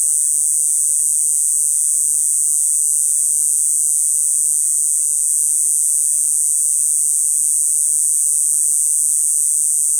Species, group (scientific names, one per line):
Diceroprocta eugraphica
Cicadidae